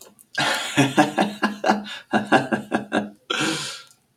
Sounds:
Laughter